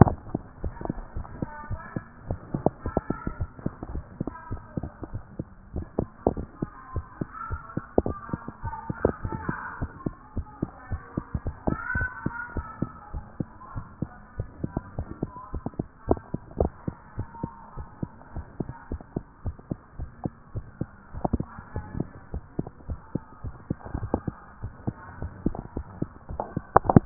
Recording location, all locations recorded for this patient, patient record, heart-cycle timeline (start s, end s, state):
tricuspid valve (TV)
aortic valve (AV)+pulmonary valve (PV)+tricuspid valve (TV)+mitral valve (MV)
#Age: Child
#Sex: Female
#Height: 124.0 cm
#Weight: 29.8 kg
#Pregnancy status: False
#Murmur: Absent
#Murmur locations: nan
#Most audible location: nan
#Systolic murmur timing: nan
#Systolic murmur shape: nan
#Systolic murmur grading: nan
#Systolic murmur pitch: nan
#Systolic murmur quality: nan
#Diastolic murmur timing: nan
#Diastolic murmur shape: nan
#Diastolic murmur grading: nan
#Diastolic murmur pitch: nan
#Diastolic murmur quality: nan
#Outcome: Normal
#Campaign: 2014 screening campaign
0.00	16.61	unannotated
16.61	16.72	S1
16.72	16.86	systole
16.86	16.96	S2
16.96	17.18	diastole
17.18	17.28	S1
17.28	17.42	systole
17.42	17.52	S2
17.52	17.76	diastole
17.76	17.86	S1
17.86	18.00	systole
18.00	18.10	S2
18.10	18.34	diastole
18.34	18.46	S1
18.46	18.60	systole
18.60	18.70	S2
18.70	18.90	diastole
18.90	19.02	S1
19.02	19.14	systole
19.14	19.24	S2
19.24	19.44	diastole
19.44	19.56	S1
19.56	19.70	systole
19.70	19.78	S2
19.78	19.98	diastole
19.98	20.10	S1
20.10	20.24	systole
20.24	20.32	S2
20.32	20.54	diastole
20.54	20.66	S1
20.66	20.80	systole
20.80	20.90	S2
20.90	21.14	diastole
21.14	27.06	unannotated